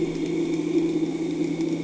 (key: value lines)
label: anthrophony, boat engine
recorder: HydroMoth